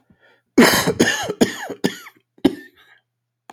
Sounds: Cough